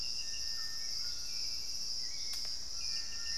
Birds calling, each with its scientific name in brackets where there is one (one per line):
Gray Antbird (Cercomacra cinerascens)
Screaming Piha (Lipaugus vociferans)
Hauxwell's Thrush (Turdus hauxwelli)
Little Tinamou (Crypturellus soui)
White-throated Toucan (Ramphastos tucanus)